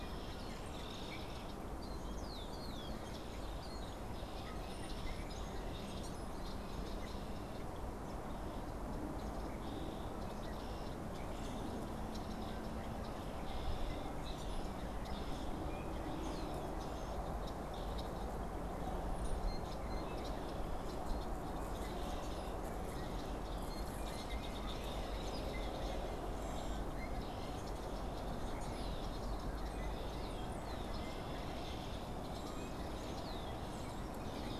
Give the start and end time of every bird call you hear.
[0.00, 15.45] Red-winged Blackbird (Agelaius phoeniceus)
[14.05, 14.75] Common Grackle (Quiscalus quiscula)
[15.55, 34.59] unidentified bird
[19.05, 19.45] Brown-headed Cowbird (Molothrus ater)
[26.15, 26.95] Common Grackle (Quiscalus quiscula)

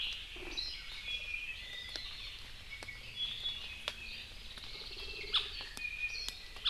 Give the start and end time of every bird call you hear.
[1.00, 2.10] Iiwi (Drepanis coccinea)
[2.70, 3.90] Iiwi (Drepanis coccinea)
[5.50, 6.60] Iiwi (Drepanis coccinea)

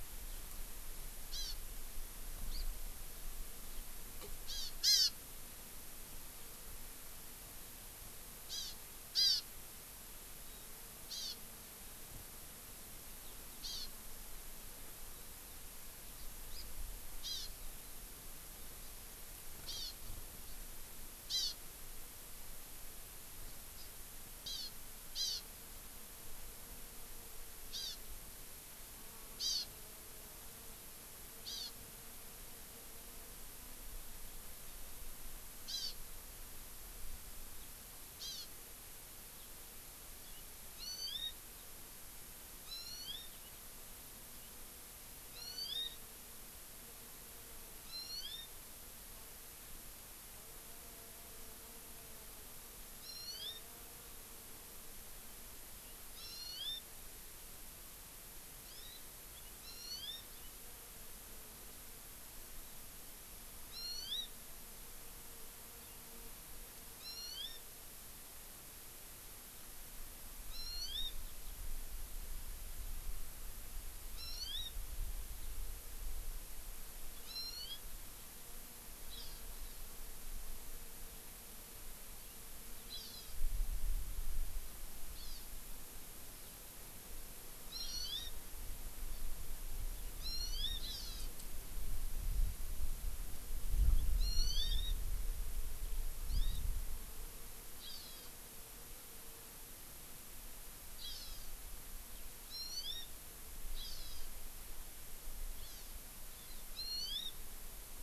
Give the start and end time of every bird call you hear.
[1.31, 1.51] Hawaii Amakihi (Chlorodrepanis virens)
[2.51, 2.61] Hawaii Amakihi (Chlorodrepanis virens)
[4.51, 5.11] Hawaii Amakihi (Chlorodrepanis virens)
[8.51, 8.71] Hawaii Amakihi (Chlorodrepanis virens)
[9.11, 9.41] Hawaii Amakihi (Chlorodrepanis virens)
[11.01, 11.41] Hawaii Amakihi (Chlorodrepanis virens)
[13.61, 13.91] Hawaii Amakihi (Chlorodrepanis virens)
[16.51, 16.61] Hawaii Amakihi (Chlorodrepanis virens)
[17.21, 17.51] Hawaii Amakihi (Chlorodrepanis virens)
[19.61, 19.91] Hawaii Amakihi (Chlorodrepanis virens)
[21.31, 21.61] Hawaii Amakihi (Chlorodrepanis virens)
[23.41, 23.91] Hawaii Amakihi (Chlorodrepanis virens)
[24.41, 24.71] Hawaii Amakihi (Chlorodrepanis virens)
[25.11, 25.41] Hawaii Amakihi (Chlorodrepanis virens)
[27.71, 28.01] Hawaii Amakihi (Chlorodrepanis virens)
[29.41, 29.61] Hawaii Amakihi (Chlorodrepanis virens)
[31.41, 31.71] Hawaii Amakihi (Chlorodrepanis virens)
[35.61, 35.91] Hawaii Amakihi (Chlorodrepanis virens)
[38.21, 38.51] Hawaii Amakihi (Chlorodrepanis virens)
[40.81, 41.31] Hawaii Amakihi (Chlorodrepanis virens)
[42.61, 43.31] Hawaii Amakihi (Chlorodrepanis virens)
[45.31, 46.01] Hawaii Amakihi (Chlorodrepanis virens)
[47.81, 48.51] Hawaii Amakihi (Chlorodrepanis virens)
[53.01, 53.61] Hawaii Amakihi (Chlorodrepanis virens)
[56.11, 56.81] Hawaii Amakihi (Chlorodrepanis virens)
[58.61, 59.01] Hawaii Amakihi (Chlorodrepanis virens)
[59.31, 60.51] Hawaii Amakihi (Chlorodrepanis virens)
[63.71, 64.31] Hawaii Amakihi (Chlorodrepanis virens)
[66.91, 67.61] Hawaii Amakihi (Chlorodrepanis virens)
[70.51, 71.11] Hawaii Amakihi (Chlorodrepanis virens)
[71.21, 71.51] Eurasian Skylark (Alauda arvensis)
[74.11, 74.71] Hawaii Amakihi (Chlorodrepanis virens)
[77.21, 77.81] Hawaii Amakihi (Chlorodrepanis virens)
[79.11, 79.81] Hawaii Amakihi (Chlorodrepanis virens)
[82.91, 83.41] Hawaii Amakihi (Chlorodrepanis virens)
[85.11, 85.51] Hawaii Amakihi (Chlorodrepanis virens)
[87.61, 88.31] Hawaii Amakihi (Chlorodrepanis virens)
[90.21, 91.31] Hawaii Amakihi (Chlorodrepanis virens)
[94.21, 95.01] Hawaii Amakihi (Chlorodrepanis virens)
[96.21, 96.61] Hawaii Amakihi (Chlorodrepanis virens)
[97.81, 98.31] Hawaii Amakihi (Chlorodrepanis virens)
[101.01, 101.51] Hawaii Amakihi (Chlorodrepanis virens)
[102.51, 103.01] Hawaii Amakihi (Chlorodrepanis virens)
[103.81, 104.21] Hawaii Amakihi (Chlorodrepanis virens)
[105.61, 105.91] Hawaii Amakihi (Chlorodrepanis virens)
[106.31, 107.31] Hawaii Amakihi (Chlorodrepanis virens)

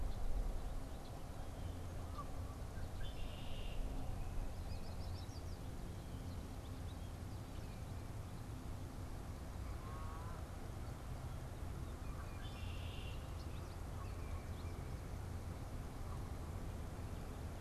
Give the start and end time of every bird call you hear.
[2.60, 4.00] Red-winged Blackbird (Agelaius phoeniceus)
[4.50, 7.90] unidentified bird
[9.60, 10.40] Canada Goose (Branta canadensis)
[11.90, 13.50] Red-winged Blackbird (Agelaius phoeniceus)

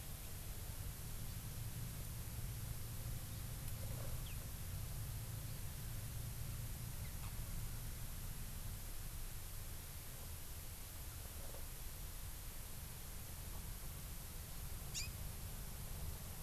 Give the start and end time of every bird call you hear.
[14.96, 15.06] Hawaii Amakihi (Chlorodrepanis virens)

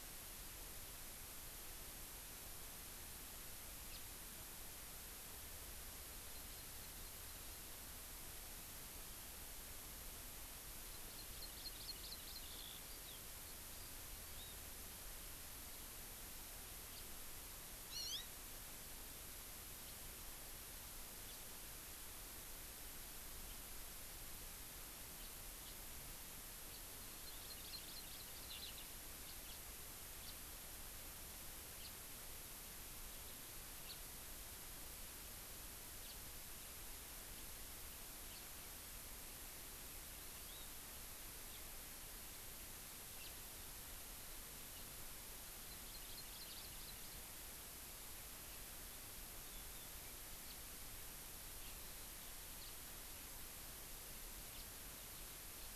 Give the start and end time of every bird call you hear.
[3.90, 4.00] House Finch (Haemorhous mexicanus)
[6.20, 7.70] Hawaii Amakihi (Chlorodrepanis virens)
[10.89, 12.60] Hawaii Amakihi (Chlorodrepanis virens)
[12.49, 14.70] Eurasian Skylark (Alauda arvensis)
[16.89, 17.09] House Finch (Haemorhous mexicanus)
[17.89, 18.30] Hawaii Amakihi (Chlorodrepanis virens)
[21.20, 21.39] House Finch (Haemorhous mexicanus)
[25.20, 25.30] House Finch (Haemorhous mexicanus)
[25.59, 25.80] House Finch (Haemorhous mexicanus)
[26.59, 28.80] Hawaii Amakihi (Chlorodrepanis virens)
[28.50, 28.80] Eurasian Skylark (Alauda arvensis)
[29.20, 29.59] House Finch (Haemorhous mexicanus)
[30.20, 30.39] House Finch (Haemorhous mexicanus)
[31.80, 31.89] House Finch (Haemorhous mexicanus)
[33.80, 33.99] House Finch (Haemorhous mexicanus)
[35.99, 36.20] House Finch (Haemorhous mexicanus)
[38.30, 38.49] House Finch (Haemorhous mexicanus)
[40.09, 40.70] Hawaii Amakihi (Chlorodrepanis virens)
[43.20, 43.30] House Finch (Haemorhous mexicanus)
[45.40, 47.30] Hawaii Amakihi (Chlorodrepanis virens)
[52.59, 52.70] House Finch (Haemorhous mexicanus)
[54.49, 54.70] House Finch (Haemorhous mexicanus)

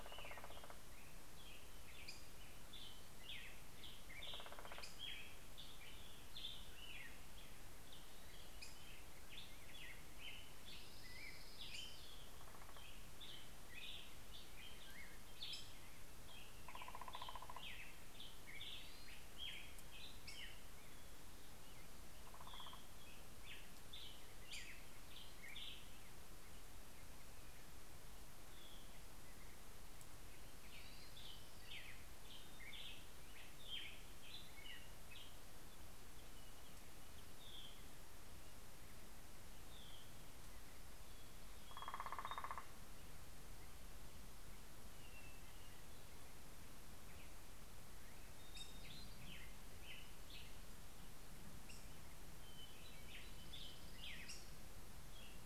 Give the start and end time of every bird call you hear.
[0.00, 1.38] Northern Flicker (Colaptes auratus)
[0.00, 21.18] Black-headed Grosbeak (Pheucticus melanocephalus)
[3.67, 5.17] Northern Flicker (Colaptes auratus)
[10.28, 12.47] Orange-crowned Warbler (Leiothlypis celata)
[15.78, 18.27] Northern Flicker (Colaptes auratus)
[18.27, 19.48] Hermit Thrush (Catharus guttatus)
[21.77, 23.48] Northern Flicker (Colaptes auratus)
[21.98, 23.18] Hermit Thrush (Catharus guttatus)
[21.98, 26.57] Black-headed Grosbeak (Pheucticus melanocephalus)
[28.07, 29.27] Hermit Thrush (Catharus guttatus)
[30.07, 35.98] Black-headed Grosbeak (Pheucticus melanocephalus)
[30.18, 31.57] Hermit Thrush (Catharus guttatus)
[36.98, 38.38] Hermit Thrush (Catharus guttatus)
[39.17, 40.48] Hermit Thrush (Catharus guttatus)
[40.77, 42.67] Hermit Thrush (Catharus guttatus)
[41.08, 43.67] Northern Flicker (Colaptes auratus)
[47.98, 52.38] Black-headed Grosbeak (Pheucticus melanocephalus)
[52.67, 55.08] Black-headed Grosbeak (Pheucticus melanocephalus)

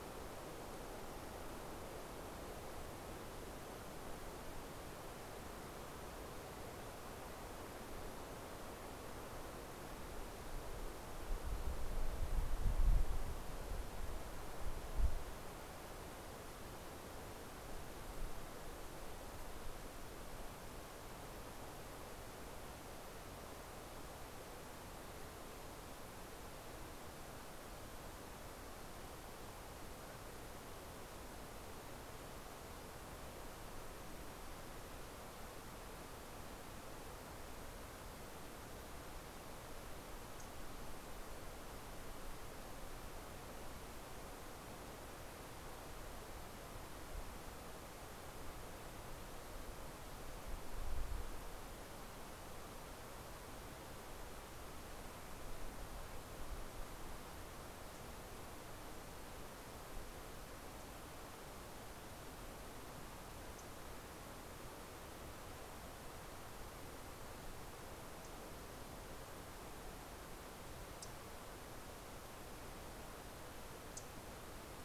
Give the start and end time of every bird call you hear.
[70.33, 74.83] MacGillivray's Warbler (Geothlypis tolmiei)

